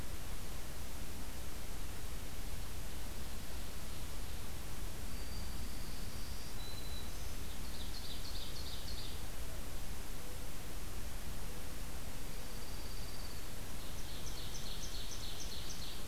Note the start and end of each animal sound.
[2.69, 4.61] Ovenbird (Seiurus aurocapilla)
[4.97, 7.45] Black-throated Green Warbler (Setophaga virens)
[7.52, 9.30] Ovenbird (Seiurus aurocapilla)
[12.22, 13.45] Dark-eyed Junco (Junco hyemalis)
[13.64, 16.07] Ovenbird (Seiurus aurocapilla)

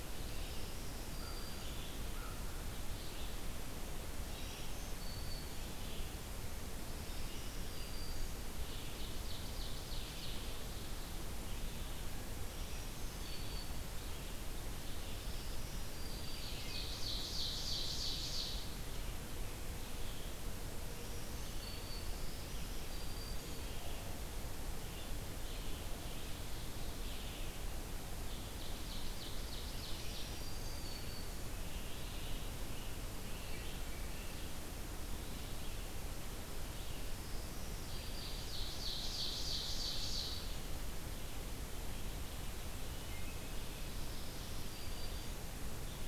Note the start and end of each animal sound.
[0.00, 41.44] Red-eyed Vireo (Vireo olivaceus)
[0.37, 1.92] Black-throated Green Warbler (Setophaga virens)
[1.11, 2.55] American Crow (Corvus brachyrhynchos)
[4.29, 5.85] Black-throated Green Warbler (Setophaga virens)
[6.81, 8.44] Black-throated Green Warbler (Setophaga virens)
[8.51, 10.62] Ovenbird (Seiurus aurocapilla)
[12.46, 13.96] Black-throated Green Warbler (Setophaga virens)
[15.03, 16.74] Black-throated Green Warbler (Setophaga virens)
[16.15, 18.78] Ovenbird (Seiurus aurocapilla)
[20.83, 23.76] Black-throated Green Warbler (Setophaga virens)
[28.11, 30.42] Ovenbird (Seiurus aurocapilla)
[30.03, 31.69] Black-throated Green Warbler (Setophaga virens)
[37.06, 38.80] Black-throated Green Warbler (Setophaga virens)
[38.03, 40.67] Ovenbird (Seiurus aurocapilla)
[42.85, 43.51] Wood Thrush (Hylocichla mustelina)
[43.91, 45.42] Black-throated Green Warbler (Setophaga virens)

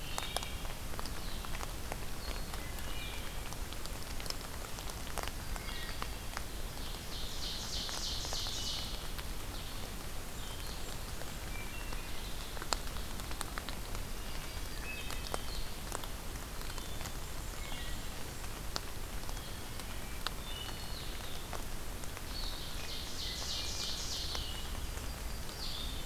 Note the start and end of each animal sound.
[0.00, 0.84] Wood Thrush (Hylocichla mustelina)
[0.00, 26.06] Blue-headed Vireo (Vireo solitarius)
[2.53, 3.33] Wood Thrush (Hylocichla mustelina)
[5.43, 6.04] Wood Thrush (Hylocichla mustelina)
[6.43, 8.93] Ovenbird (Seiurus aurocapilla)
[10.19, 11.55] Blackburnian Warbler (Setophaga fusca)
[11.44, 12.16] Wood Thrush (Hylocichla mustelina)
[14.62, 15.35] Wood Thrush (Hylocichla mustelina)
[16.61, 17.17] Wood Thrush (Hylocichla mustelina)
[20.28, 20.99] Wood Thrush (Hylocichla mustelina)
[22.16, 24.58] Ovenbird (Seiurus aurocapilla)
[24.53, 25.83] Yellow-rumped Warbler (Setophaga coronata)

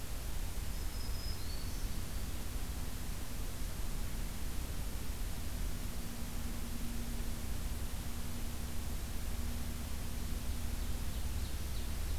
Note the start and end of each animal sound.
[0.51, 2.39] Black-throated Green Warbler (Setophaga virens)
[10.37, 12.18] Ovenbird (Seiurus aurocapilla)

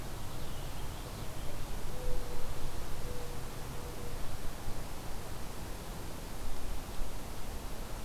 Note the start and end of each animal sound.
[0.00, 1.44] Purple Finch (Haemorhous purpureus)
[1.07, 4.21] Mourning Dove (Zenaida macroura)

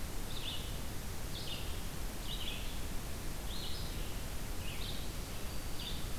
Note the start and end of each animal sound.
[0.00, 6.18] Red-eyed Vireo (Vireo olivaceus)

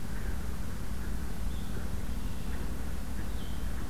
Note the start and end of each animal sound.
[1.40, 3.68] Blue-headed Vireo (Vireo solitarius)
[1.99, 2.75] Red-winged Blackbird (Agelaius phoeniceus)

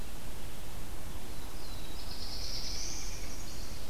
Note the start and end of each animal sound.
[0.99, 3.14] Black-throated Blue Warbler (Setophaga caerulescens)
[2.18, 3.37] American Robin (Turdus migratorius)
[2.98, 3.90] Chestnut-sided Warbler (Setophaga pensylvanica)

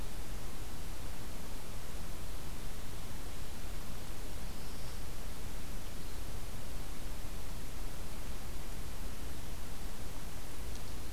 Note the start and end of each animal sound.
[4.03, 5.13] Black-throated Blue Warbler (Setophaga caerulescens)

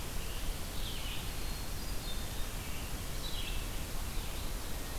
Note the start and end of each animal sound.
[0.00, 0.99] Scarlet Tanager (Piranga olivacea)
[0.00, 4.98] Red-eyed Vireo (Vireo olivaceus)
[1.08, 2.63] Hermit Thrush (Catharus guttatus)

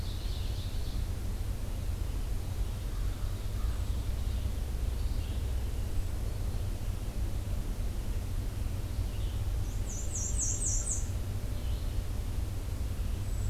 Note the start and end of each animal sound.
[0.00, 1.08] Ovenbird (Seiurus aurocapilla)
[0.00, 13.49] Red-eyed Vireo (Vireo olivaceus)
[2.71, 3.76] American Crow (Corvus brachyrhynchos)
[2.88, 4.46] Ovenbird (Seiurus aurocapilla)
[3.61, 4.04] Hermit Thrush (Catharus guttatus)
[5.72, 6.20] Hermit Thrush (Catharus guttatus)
[9.58, 11.19] Black-and-white Warbler (Mniotilta varia)

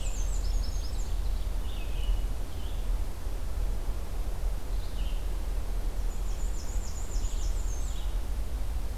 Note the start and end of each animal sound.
[0.00, 0.98] Black-and-white Warbler (Mniotilta varia)
[0.00, 8.97] Red-eyed Vireo (Vireo olivaceus)
[5.87, 8.24] Black-and-white Warbler (Mniotilta varia)

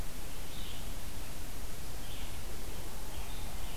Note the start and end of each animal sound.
[0.00, 3.76] Red-eyed Vireo (Vireo olivaceus)

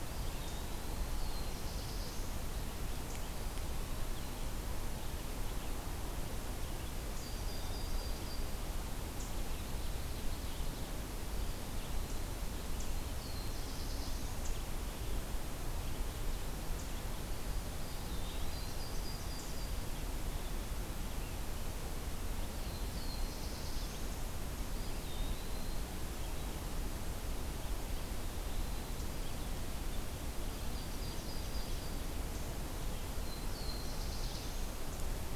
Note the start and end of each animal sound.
[0.00, 1.13] Eastern Wood-Pewee (Contopus virens)
[0.99, 2.45] Black-throated Blue Warbler (Setophaga caerulescens)
[7.19, 8.59] Yellow-rumped Warbler (Setophaga coronata)
[9.22, 11.02] Ovenbird (Seiurus aurocapilla)
[13.09, 14.35] Black-throated Blue Warbler (Setophaga caerulescens)
[17.65, 18.76] Eastern Wood-Pewee (Contopus virens)
[18.38, 19.86] Yellow-rumped Warbler (Setophaga coronata)
[22.51, 24.08] Black-throated Blue Warbler (Setophaga caerulescens)
[24.59, 25.82] Eastern Wood-Pewee (Contopus virens)
[30.38, 32.03] Yellow-rumped Warbler (Setophaga coronata)
[33.03, 34.67] Black-throated Blue Warbler (Setophaga caerulescens)

